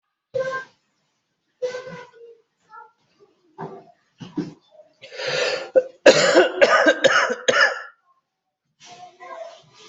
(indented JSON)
{
  "expert_labels": [
    {
      "quality": "ok",
      "cough_type": "dry",
      "dyspnea": false,
      "wheezing": false,
      "stridor": false,
      "choking": false,
      "congestion": false,
      "nothing": true,
      "diagnosis": "COVID-19",
      "severity": "mild"
    }
  ],
  "age": 37,
  "gender": "male",
  "respiratory_condition": false,
  "fever_muscle_pain": false,
  "status": "symptomatic"
}